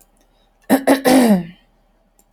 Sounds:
Throat clearing